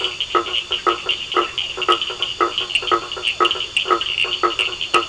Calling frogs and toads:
blacksmith tree frog (Boana faber), two-colored oval frog (Elachistocleis bicolor), Cochran's lime tree frog (Sphaenorhynchus surdus)

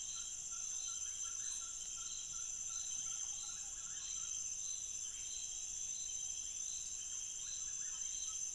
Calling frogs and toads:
none

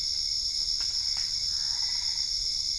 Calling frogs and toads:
Boana albopunctata

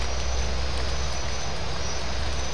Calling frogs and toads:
none

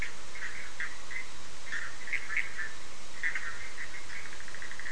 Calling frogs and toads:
Bischoff's tree frog (Boana bischoffi)

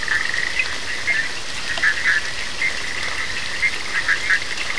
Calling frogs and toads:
Bischoff's tree frog (Boana bischoffi)

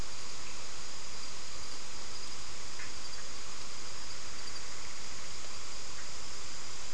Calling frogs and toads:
none

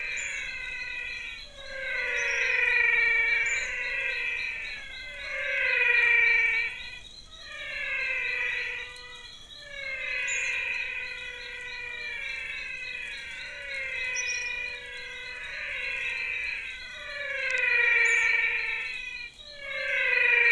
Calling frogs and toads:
Adenomera diptyx, menwig frog (Physalaemus albonotatus)

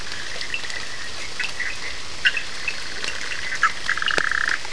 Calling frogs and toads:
Cochran's lime tree frog (Sphaenorhynchus surdus), Bischoff's tree frog (Boana bischoffi), two-colored oval frog (Elachistocleis bicolor)

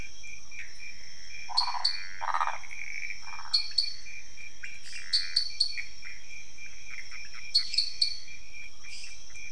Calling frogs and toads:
Pithecopus azureus, waxy monkey tree frog (Phyllomedusa sauvagii), dwarf tree frog (Dendropsophus nanus), pointedbelly frog (Leptodactylus podicipinus), lesser tree frog (Dendropsophus minutus)

